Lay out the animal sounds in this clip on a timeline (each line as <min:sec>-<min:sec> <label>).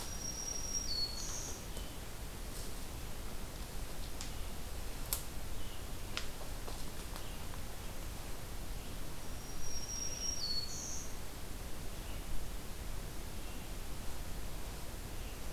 0:00.0-0:01.9 Black-throated Green Warbler (Setophaga virens)
0:00.0-0:15.5 Red-eyed Vireo (Vireo olivaceus)
0:09.0-0:11.2 Black-throated Green Warbler (Setophaga virens)